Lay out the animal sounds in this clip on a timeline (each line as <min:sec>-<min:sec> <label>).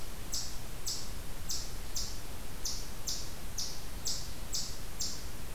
0:00.0-0:05.5 Eastern Chipmunk (Tamias striatus)